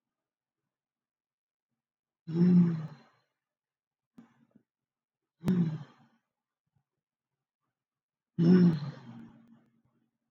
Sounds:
Sigh